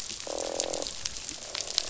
{"label": "biophony, croak", "recorder": "SoundTrap 500"}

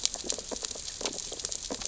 {"label": "biophony, sea urchins (Echinidae)", "recorder": "SoundTrap 600 or HydroMoth"}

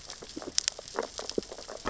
{"label": "biophony, sea urchins (Echinidae)", "recorder": "SoundTrap 600 or HydroMoth"}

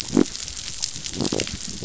{"label": "biophony", "recorder": "SoundTrap 500"}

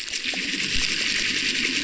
{"label": "biophony", "recorder": "SoundTrap 600"}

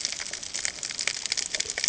{"label": "ambient", "recorder": "HydroMoth"}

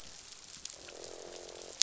{"label": "biophony, croak", "recorder": "SoundTrap 500"}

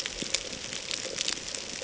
{"label": "ambient", "recorder": "HydroMoth"}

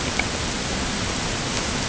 {"label": "ambient", "recorder": "HydroMoth"}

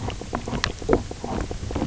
{"label": "biophony, knock croak", "recorder": "SoundTrap 300"}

